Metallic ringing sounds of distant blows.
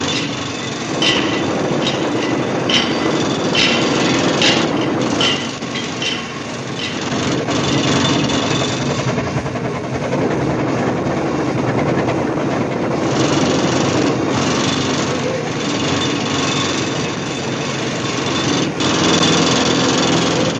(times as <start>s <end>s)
0.0s 7.2s